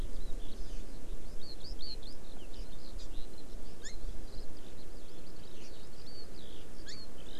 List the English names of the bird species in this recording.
Eurasian Skylark, Hawaii Amakihi